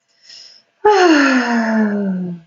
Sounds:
Sigh